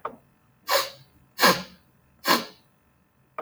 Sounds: Sniff